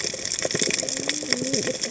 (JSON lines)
{"label": "biophony, cascading saw", "recorder": "HydroMoth"}